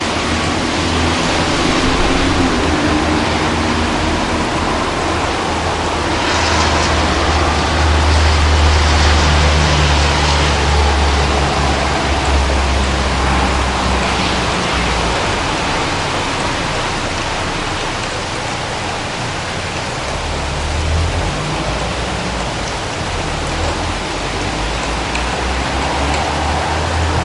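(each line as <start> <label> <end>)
0.0 Cars are driving in the distance. 27.2
0.0 Rain is falling loudly. 27.2
0.0 White noise is heard in the background of an outdoor environment. 27.2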